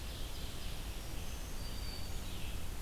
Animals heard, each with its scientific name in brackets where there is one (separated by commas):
Black-throated Green Warbler (Setophaga virens), Ovenbird (Seiurus aurocapilla), Red-eyed Vireo (Vireo olivaceus)